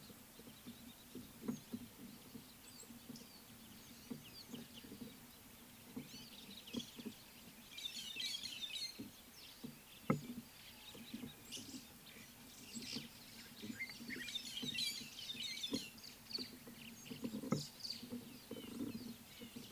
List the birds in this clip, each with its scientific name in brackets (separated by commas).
White-headed Buffalo-Weaver (Dinemellia dinemelli), Red-fronted Barbet (Tricholaema diademata), Rüppell's Starling (Lamprotornis purpuroptera)